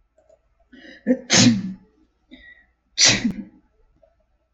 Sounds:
Sneeze